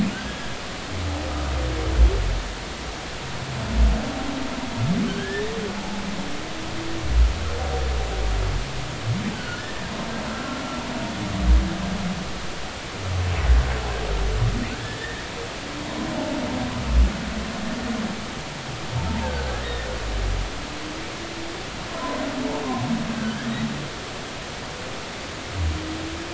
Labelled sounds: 5.1	5.6	humpback whale, 1.4 to 1.9 kHz
9.3	9.9	humpback whale, 1.4 to 1.9 kHz
10.3	10.8	humpback whale, 1.3 to 1.4 kHz
14.8	15.2	humpback whale, 1.6 to 2.0 kHz
19.0	19.9	humpback whale, 0.86 to 1.9 kHz
21.9	22.2	humpback whale, 0.93 to 1.1 kHz
23.1	23.5	humpback whale, 1.4 to 1.8 kHz

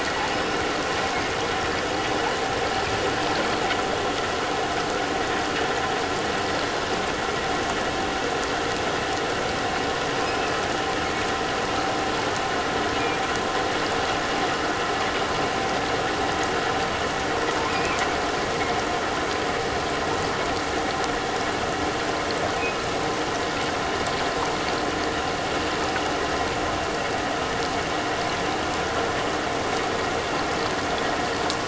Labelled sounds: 0.3	0.6	killer whale, offshore, 5.1 to 5.4 kHz
17.7	18.0	killer whale, offshore, 2.4 to 2.7 kHz

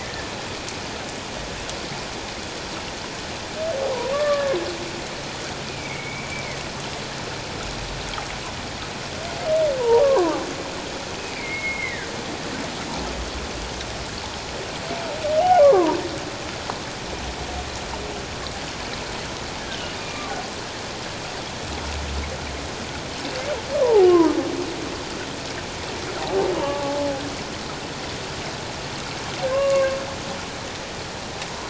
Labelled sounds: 0.0	0.3	humpback whale, 1.6 to 1.8 kHz
4.1	4.6	humpback whale, 1.1 to 1.8 kHz
5.7	6.3	humpback whale, 2.0 to 2.5 kHz
9.8	10.4	humpback whale, 0.78 to 1.2 kHz
11.3	12.1	humpback whale, 1.5 to 2.4 kHz
15.6	16.0	humpback whale, 0.78 to 1.2 kHz
20.0	20.3	humpback whale, 1.1 to 2.5 kHz
23.7	24.1	humpback whale, 0.78 to 1.2 kHz
26.6	27.0	humpback whale, 0.81 to 1.2 kHz
29.5	30.0	humpback whale, 1.0 to 1.2 kHz

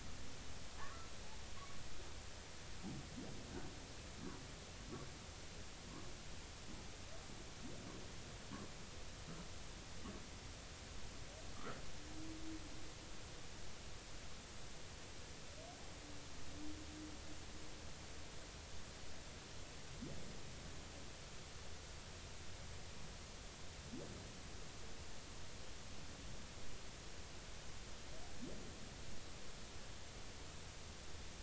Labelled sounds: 0.8	1.1	humpback whale, 0.99 to 1.4 kHz
11.5	11.8	humpback whale, 1.1 to 1.6 kHz

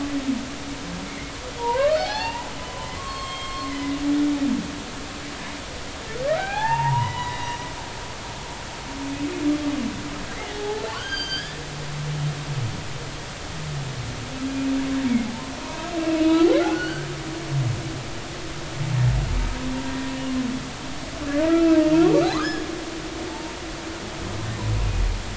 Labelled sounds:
1.6	4.0	humpback whale, 0.80 to 4.8 kHz
6.3	7.6	humpback whale, 0.80 to 4.0 kHz
10.3	11.6	humpback whale, 0.80 to 6.5 kHz
15.1	15.3	humpback whale, 2.1 to 2.4 kHz
16.2	17.1	humpback whale, 1.3 to 4.6 kHz
19.9	20.1	humpback whale, 1.8 to 1.9 kHz
21.5	21.8	humpback whale, 1.2 to 1.4 kHz
22.3	22.6	humpback whale, 0.99 to 5.2 kHz
23.3	23.5	humpback whale, 0.83 to 0.96 kHz

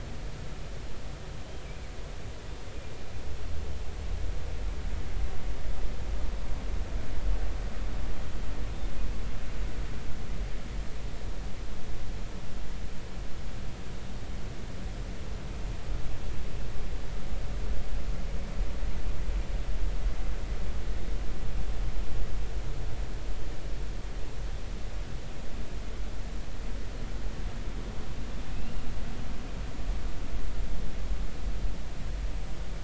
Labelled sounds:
28.5	28.8	killer whale, northern resident, G clan, 2.5 to 2.9 kHz

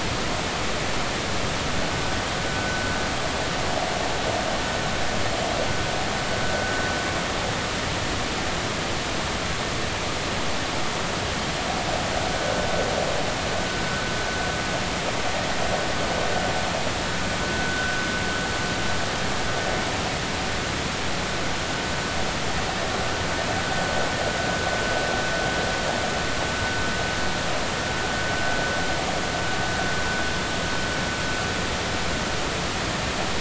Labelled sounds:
2.5	2.8	vessel noise, 1.4 to 1.5 kHz
17.4	18.0	vessel noise, 1.3 to 1.6 kHz

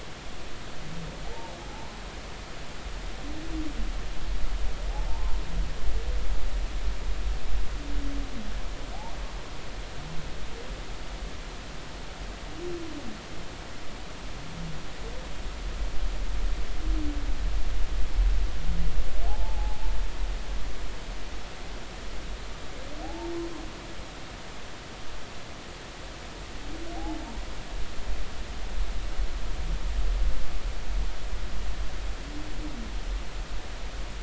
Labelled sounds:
1.3	2.0	humpback whale, 0.80 to 1.1 kHz
5.1	5.4	humpback whale, 0.86 to 1.1 kHz
19.3	19.9	humpback whale, 0.80 to 0.99 kHz
23.0	23.3	humpback whale, 0.80 to 0.96 kHz

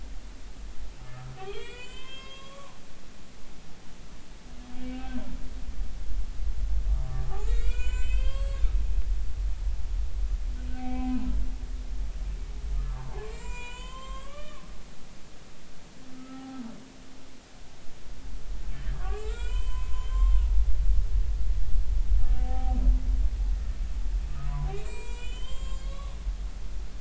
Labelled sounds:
1.4	2.8	humpback whale, 0.93 to 7.3 kHz
4.9	5.2	humpback whale, 1.5 to 2.7 kHz
7.1	8.6	humpback whale, 0.80 to 8.0 kHz
10.7	11.2	humpback whale, 0.80 to 2.4 kHz
12.8	14.6	humpback whale, 0.80 to 8.0 kHz
16.2	16.6	humpback whale, 0.80 to 1.4 kHz
18.7	20.4	humpback whale, 0.90 to 8.0 kHz
22.3	22.8	humpback whale, 0.80 to 0.86 kHz
24.7	26.1	humpback whale, 0.90 to 7.7 kHz

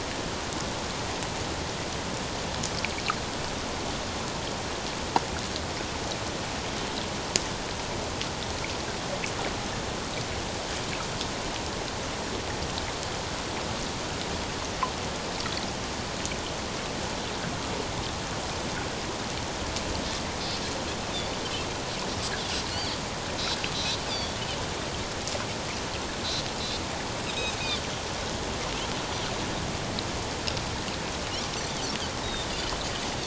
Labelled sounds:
22.7	23.0	Pacific white-sided dolphin, 4.1 to 4.7 kHz
23.7	24.3	Pacific white-sided dolphin, 3.3 to 5.0 kHz
32.2	32.5	Pacific white-sided dolphin, 3.5 to 3.9 kHz

